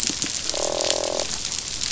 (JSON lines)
{"label": "biophony, croak", "recorder": "SoundTrap 500"}